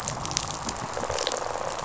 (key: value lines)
label: biophony, rattle response
recorder: SoundTrap 500